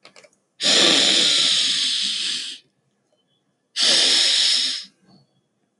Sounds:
Sniff